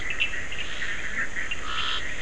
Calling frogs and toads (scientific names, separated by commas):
Boana bischoffi, Scinax perereca, Sphaenorhynchus surdus